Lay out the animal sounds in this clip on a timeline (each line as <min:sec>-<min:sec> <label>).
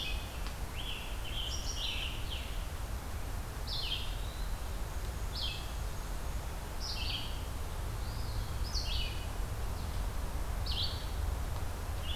0:00.0-0:02.6 Scarlet Tanager (Piranga olivacea)
0:00.0-0:04.1 Red-eyed Vireo (Vireo olivaceus)
0:03.8-0:04.7 Eastern Wood-Pewee (Contopus virens)
0:04.7-0:06.6 Black-and-white Warbler (Mniotilta varia)
0:05.2-0:12.2 Red-eyed Vireo (Vireo olivaceus)
0:07.9-0:08.6 Eastern Wood-Pewee (Contopus virens)